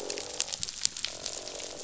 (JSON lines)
{"label": "biophony, croak", "recorder": "SoundTrap 500"}